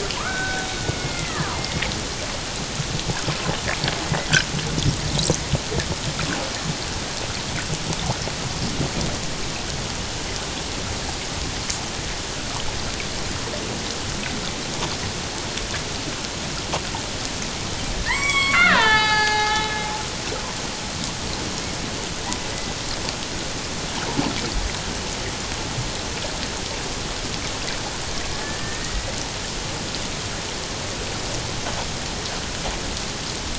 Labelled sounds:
0.1	1.8	killer whale, Bigg's (transient), 0.91 to 3.8 kHz
18.0	19.7	killer whale, Bigg's (transient), 0.78 to 7.8 kHz
28.6	29.2	killer whale, Bigg's (transient), 1.8 to 2.1 kHz

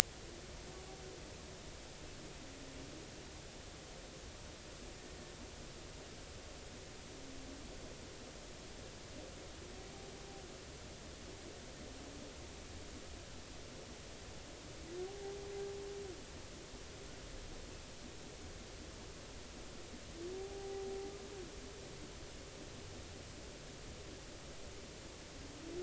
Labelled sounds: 15.1	15.4	humpback whale, 0.80 to 0.86 kHz
20.4	21.1	humpback whale, 0.80 to 0.83 kHz

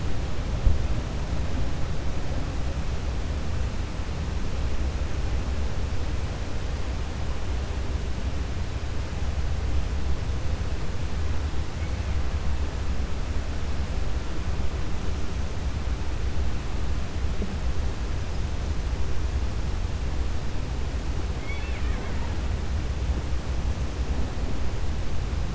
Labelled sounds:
21.3	22.3	killer whale, Bigg's (transient), 0.66 to 4.4 kHz

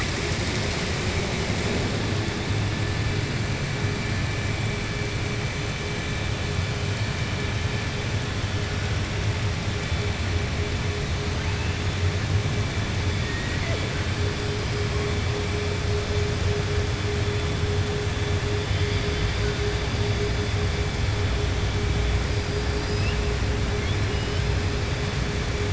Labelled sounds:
22.7	23.1	killer whale, southern resident, 4.1 to 5.9 kHz

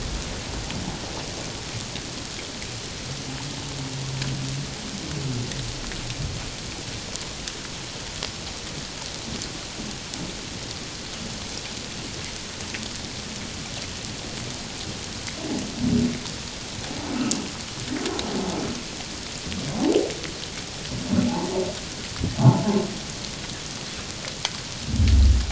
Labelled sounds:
17.2	17.5	humpback whale, 2.7 to 2.8 kHz
22.4	22.6	humpback whale, 0.78 to 1.2 kHz

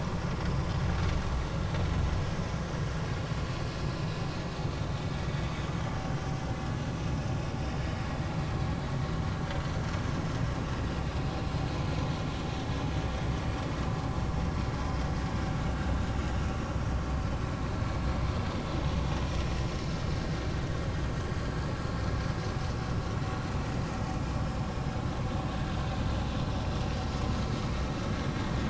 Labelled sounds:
0.4	0.8	vessel noise, 4.8 to 5.1 kHz
24.9	25.2	vessel noise, 3.7 to 3.9 kHz
26.4	26.7	vessel noise, 5.3 to 5.6 kHz

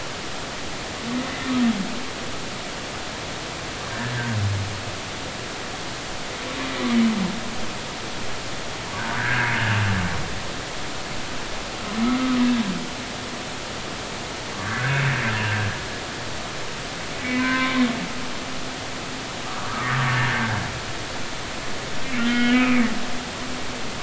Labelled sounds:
9.0	9.5	humpback whale, 1.4 to 2.0 kHz
14.5	15.0	humpback whale, 1.1 to 1.8 kHz
17.2	17.9	humpback whale, 0.96 to 2.6 kHz
19.4	20.6	humpback whale, 1.1 to 1.7 kHz
22.2	22.8	humpback whale, 1.3 to 3.2 kHz

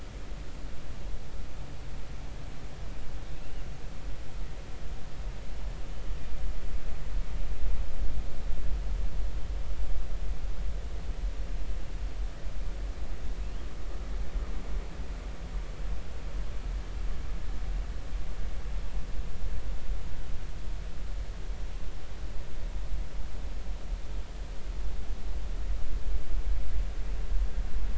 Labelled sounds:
3.3	3.6	killer whale, northern resident, G clan, 2.5 to 3.0 kHz

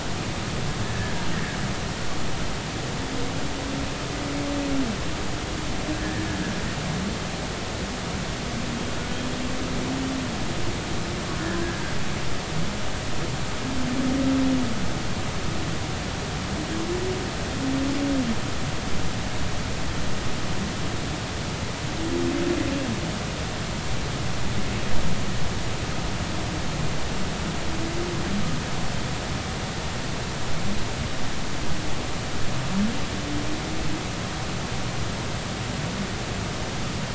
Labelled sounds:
0.8	1.6	humpback whale, 1.6 to 2.0 kHz
6.0	6.3	humpback whale, 1.6 to 1.9 kHz
11.4	11.8	humpback whale, 1.5 to 1.8 kHz

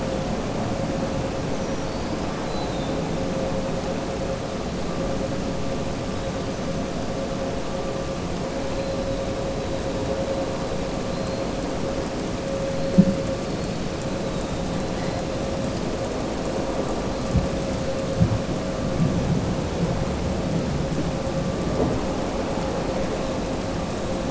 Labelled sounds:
11.1	11.4	killer whale, southern resident, 4.0 to 4.3 kHz

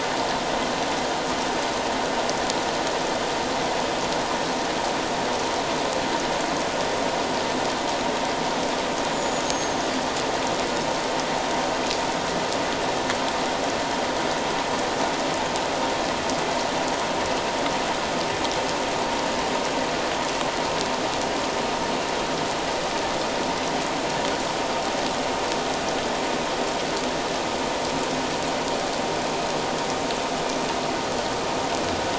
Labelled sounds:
9.1	9.8	killer whale, 6.3 to 7.0 kHz

